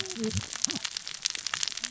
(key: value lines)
label: biophony, cascading saw
recorder: SoundTrap 600 or HydroMoth